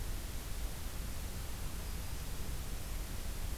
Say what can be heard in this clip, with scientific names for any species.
Setophaga virens